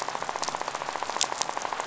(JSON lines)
{"label": "biophony, rattle", "recorder": "SoundTrap 500"}